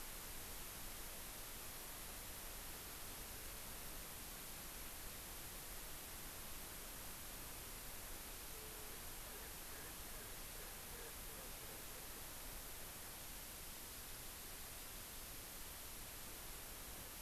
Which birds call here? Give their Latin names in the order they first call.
Pternistis erckelii